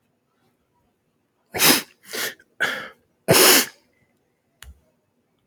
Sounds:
Sniff